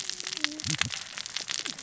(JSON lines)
{"label": "biophony, cascading saw", "recorder": "SoundTrap 600 or HydroMoth"}